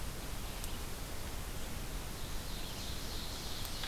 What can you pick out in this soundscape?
Ovenbird